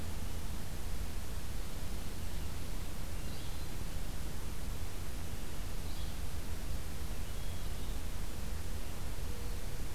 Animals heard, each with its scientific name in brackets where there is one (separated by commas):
Hermit Thrush (Catharus guttatus), Yellow-bellied Flycatcher (Empidonax flaviventris)